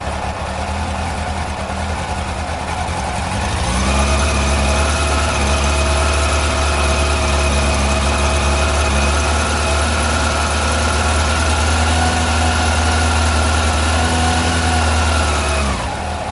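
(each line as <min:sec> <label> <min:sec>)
0:00.0 An engine rattles. 0:16.3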